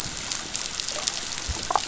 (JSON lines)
{"label": "biophony, damselfish", "recorder": "SoundTrap 500"}